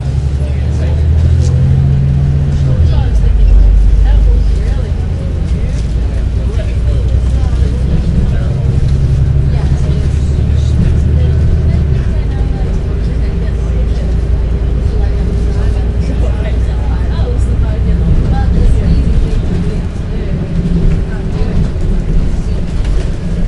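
Constant ambient noise with crowd voices and car engines. 0:00.0 - 0:23.5

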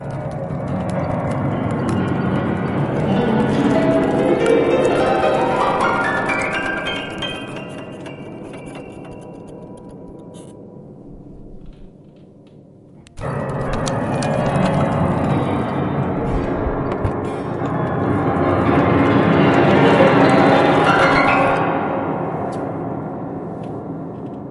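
An off-tune piano plays many notes chaotically indoors. 0:00.0 - 0:10.8
An off-tune piano plays many notes chaotically indoors. 0:13.3 - 0:24.5

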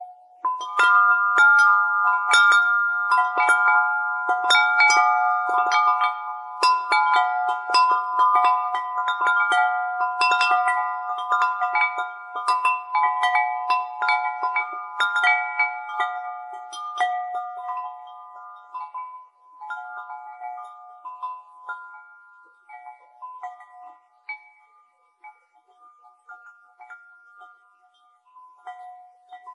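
Wind chimes tinkle softly as the sound slowly diminishes. 0:00.3 - 0:29.5

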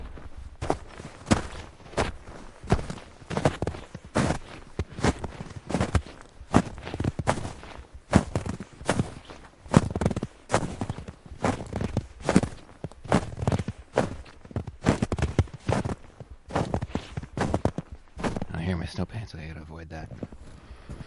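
A man is speaking. 0:00.0 - 0:18.5
Snow crunches rhythmically under someone's footsteps. 0:18.5 - 0:21.1

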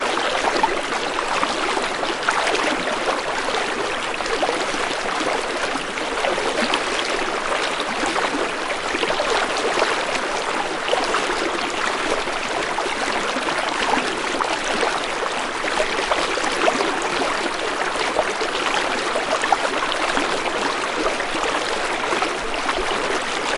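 Water is continuously gurgling loudly. 0:00.0 - 0:23.6

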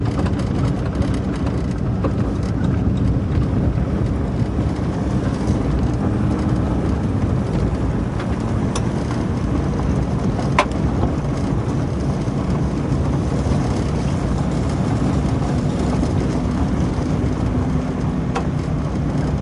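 A car drives slowly on a bumpy road. 0:00.0 - 0:19.4

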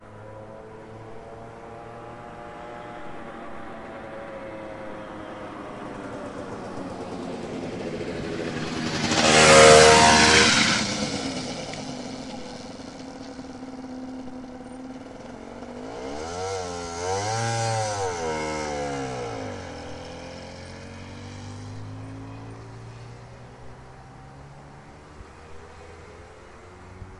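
A motorbike is approaching. 0:00.0 - 0:08.4
A motorbike is slowing down. 0:00.0 - 0:08.4
A motorbike passes by. 0:08.5 - 0:11.1
A motorbike comes to a halt. 0:10.9 - 0:16.0
A motorbike accelerates. 0:16.1 - 0:20.3
A motorbike driving away into the distance. 0:20.3 - 0:27.2

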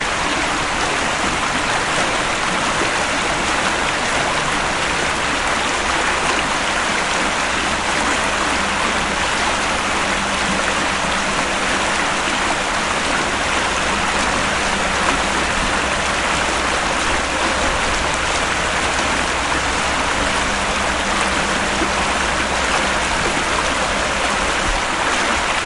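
A steady, rolling flow of a medium-sized river with occasional splashes. 0:00.0 - 0:25.7

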